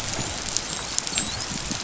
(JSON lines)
{"label": "biophony, dolphin", "recorder": "SoundTrap 500"}